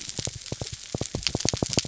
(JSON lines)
{"label": "biophony", "recorder": "SoundTrap 300"}